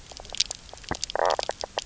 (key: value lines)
label: biophony, knock croak
recorder: SoundTrap 300